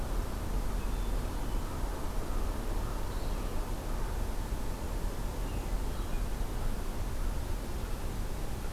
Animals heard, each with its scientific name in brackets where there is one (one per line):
Red-eyed Vireo (Vireo olivaceus)
Hermit Thrush (Catharus guttatus)